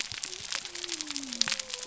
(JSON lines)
{"label": "biophony", "recorder": "SoundTrap 300"}